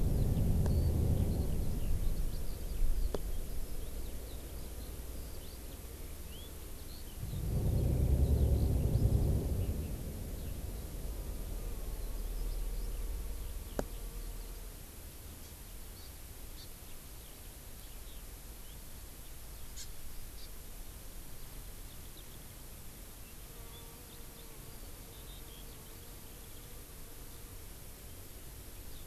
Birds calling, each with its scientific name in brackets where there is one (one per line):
Hawaii Amakihi (Chlorodrepanis virens)
Eurasian Skylark (Alauda arvensis)